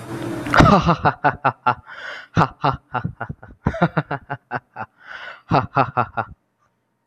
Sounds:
Laughter